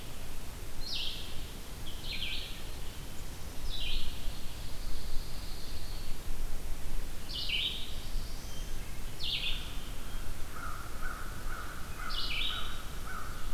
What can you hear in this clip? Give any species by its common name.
Red-eyed Vireo, Black-capped Chickadee, Pine Warbler, Black-throated Blue Warbler, American Crow